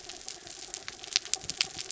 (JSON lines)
{"label": "anthrophony, mechanical", "recorder": "SoundTrap 300"}